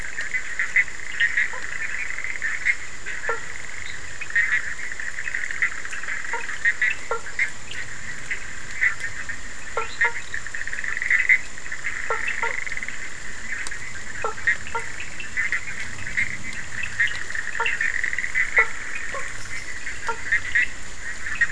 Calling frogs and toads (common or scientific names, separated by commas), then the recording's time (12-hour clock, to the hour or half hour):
Bischoff's tree frog, Cochran's lime tree frog, blacksmith tree frog, fine-lined tree frog
12:30am